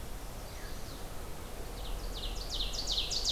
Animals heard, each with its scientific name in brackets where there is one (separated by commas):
Ovenbird (Seiurus aurocapilla), Veery (Catharus fuscescens), Chestnut-sided Warbler (Setophaga pensylvanica)